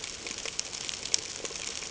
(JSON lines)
{"label": "ambient", "recorder": "HydroMoth"}